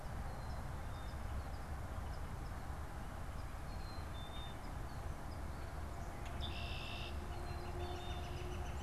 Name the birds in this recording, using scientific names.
Poecile atricapillus, Agelaius phoeniceus, Colaptes auratus